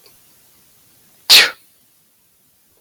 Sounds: Sneeze